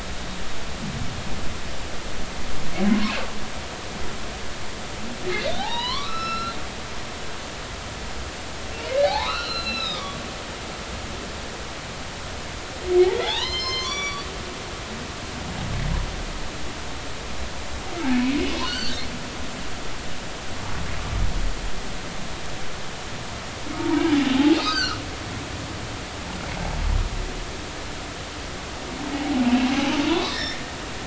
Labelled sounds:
2.9	3.2	humpback whale, 0.83 to 1.3 kHz
5.6	6.6	humpback whale, 0.80 to 5.5 kHz
9.0	10.2	humpback whale, 0.80 to 5.4 kHz
13.1	14.3	humpback whale, 0.80 to 7.4 kHz
18.0	19.0	humpback whale, 1.4 to 4.7 kHz
23.8	24.0	humpback whale, 0.86 to 1.0 kHz
24.5	25.0	humpback whale, 1.2 to 6.5 kHz
29.4	30.6	humpback whale, 0.80 to 3.8 kHz

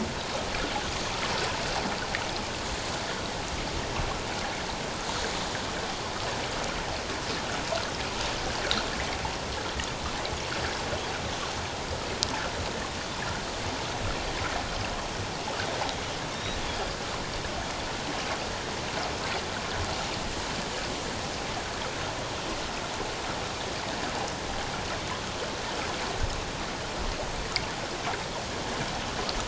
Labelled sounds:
16.3	16.9	Pacific white-sided dolphin, 3.2 to 5.8 kHz

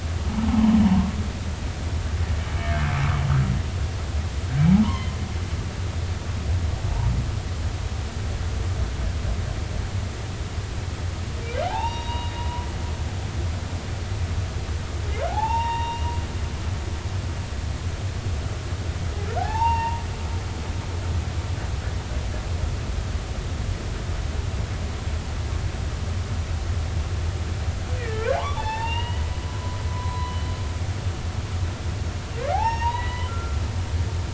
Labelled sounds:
0.3	1.1	humpback whale, 0.80 to 1.2 kHz
4.8	5.1	humpback whale, 0.86 to 2.2 kHz
11.7	12.4	humpback whale, 0.80 to 5.7 kHz
15.3	16.1	humpback whale, 0.80 to 5.7 kHz
19.4	20.0	humpback whale, 0.80 to 4.7 kHz
28.0	30.5	humpback whale, 0.80 to 5.5 kHz
32.5	33.6	humpback whale, 0.80 to 6.7 kHz

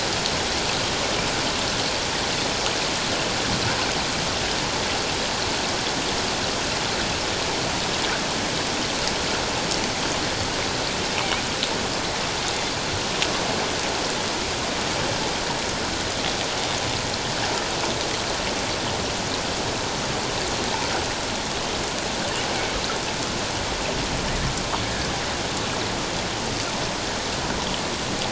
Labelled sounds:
24.8	25.1	killer whale, offshore, call OFF07, 1.5 to 1.9 kHz

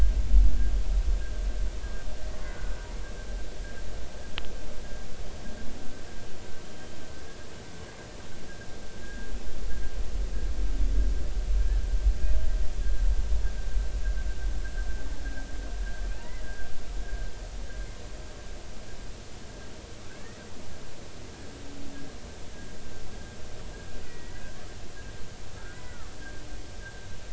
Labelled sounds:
2.4	2.8	humpback whale, 1.4 to 1.7 kHz
6.6	6.9	humpback whale, 3.1 to 3.2 kHz
9.0	9.3	humpback whale, 1.6 to 1.7 kHz
16.2	16.4	humpback whale, 1.8 to 2.1 kHz
20.1	20.4	humpback whale, 1.5 to 2.0 kHz
24.1	24.4	humpback whale, 1.9 to 2.0 kHz
25.6	26.1	humpback whale, 1.1 to 2.0 kHz

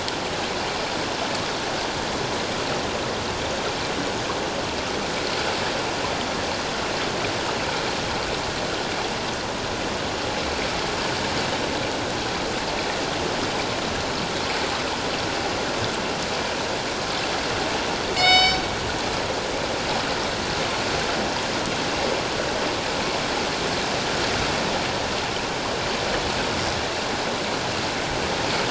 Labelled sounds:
18.1	18.6	killer whale, northern resident, G clan, call N24ii, 1.4 to 7.6 kHz

